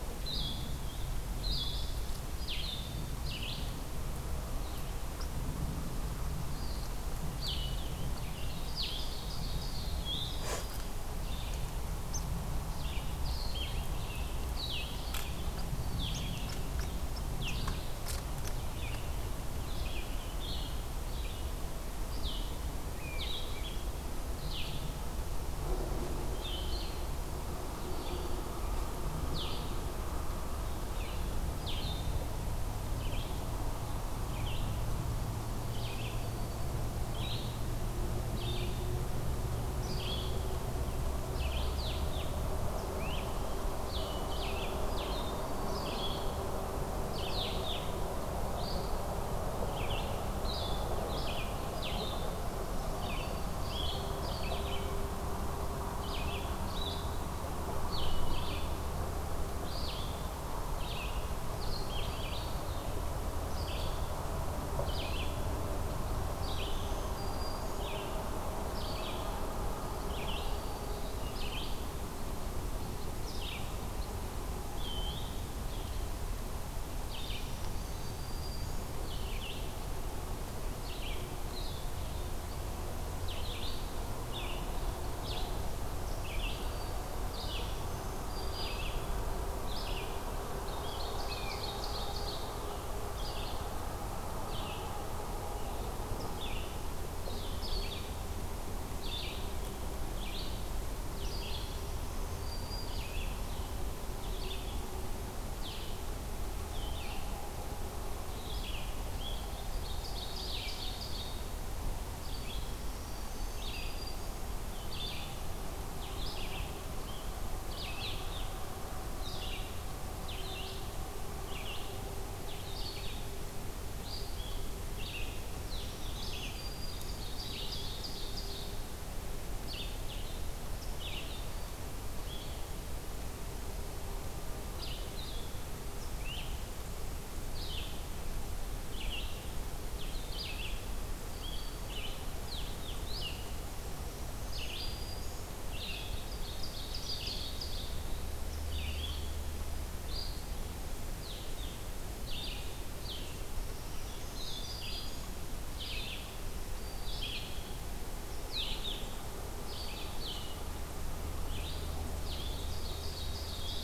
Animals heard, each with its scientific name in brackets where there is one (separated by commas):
Blue-headed Vireo (Vireo solitarius), Ovenbird (Seiurus aurocapilla), Black-throated Green Warbler (Setophaga virens), Red-eyed Vireo (Vireo olivaceus)